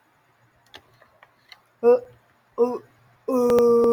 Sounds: Throat clearing